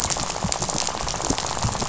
{"label": "biophony, rattle", "recorder": "SoundTrap 500"}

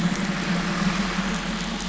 {"label": "anthrophony, boat engine", "recorder": "SoundTrap 500"}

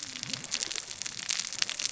{"label": "biophony, cascading saw", "recorder": "SoundTrap 600 or HydroMoth"}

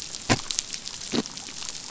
{"label": "biophony", "recorder": "SoundTrap 500"}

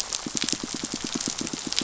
{"label": "biophony, pulse", "recorder": "SoundTrap 500"}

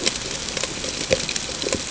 {"label": "ambient", "recorder": "HydroMoth"}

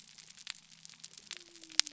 {"label": "biophony", "recorder": "SoundTrap 300"}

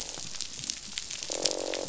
{"label": "biophony, croak", "recorder": "SoundTrap 500"}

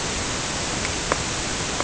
{"label": "ambient", "recorder": "HydroMoth"}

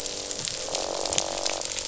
{"label": "biophony, croak", "recorder": "SoundTrap 500"}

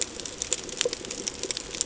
{"label": "ambient", "recorder": "HydroMoth"}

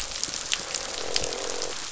{"label": "biophony, croak", "recorder": "SoundTrap 500"}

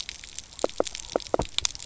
{"label": "biophony, knock croak", "recorder": "SoundTrap 300"}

